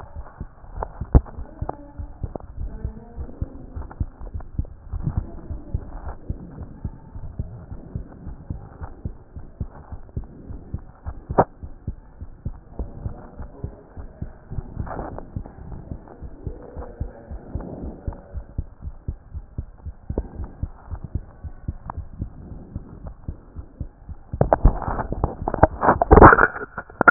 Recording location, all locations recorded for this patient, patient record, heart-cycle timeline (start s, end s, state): aortic valve (AV)
aortic valve (AV)+pulmonary valve (PV)+tricuspid valve (TV)+mitral valve (MV)
#Age: Child
#Sex: Male
#Height: 131.0 cm
#Weight: 24.9 kg
#Pregnancy status: False
#Murmur: Absent
#Murmur locations: nan
#Most audible location: nan
#Systolic murmur timing: nan
#Systolic murmur shape: nan
#Systolic murmur grading: nan
#Systolic murmur pitch: nan
#Systolic murmur quality: nan
#Diastolic murmur timing: nan
#Diastolic murmur shape: nan
#Diastolic murmur grading: nan
#Diastolic murmur pitch: nan
#Diastolic murmur quality: nan
#Outcome: Abnormal
#Campaign: 2014 screening campaign
0.00	2.43	unannotated
2.43	2.58	diastole
2.58	2.72	S1
2.72	2.84	systole
2.84	2.94	S2
2.94	3.18	diastole
3.18	3.28	S1
3.28	3.40	systole
3.40	3.48	S2
3.48	3.74	diastole
3.74	3.86	S1
3.86	4.00	systole
4.00	4.08	S2
4.08	4.32	diastole
4.32	4.44	S1
4.44	4.56	systole
4.56	4.66	S2
4.66	4.92	diastole
4.92	5.06	S1
5.06	5.16	systole
5.16	5.26	S2
5.26	5.50	diastole
5.50	5.60	S1
5.60	5.72	systole
5.72	5.82	S2
5.82	6.04	diastole
6.04	6.16	S1
6.16	6.28	systole
6.28	6.38	S2
6.38	6.58	diastole
6.58	6.68	S1
6.68	6.84	systole
6.84	6.94	S2
6.94	7.16	diastole
7.16	7.28	S1
7.28	7.40	systole
7.40	7.50	S2
7.50	7.72	diastole
7.72	7.82	S1
7.82	7.94	systole
7.94	8.02	S2
8.02	8.26	diastole
8.26	8.36	S1
8.36	8.50	systole
8.50	8.58	S2
8.58	8.81	diastole
8.81	8.92	S1
8.92	9.04	systole
9.04	9.14	S2
9.14	9.34	diastole
9.34	9.47	S1
9.47	9.59	systole
9.59	9.69	S2
9.68	9.90	diastole
9.90	10.02	S1
10.02	10.16	systole
10.16	10.26	S2
10.26	10.49	diastole
10.49	10.61	S1
10.61	10.73	systole
10.73	10.83	S2
10.83	11.06	diastole
11.06	27.10	unannotated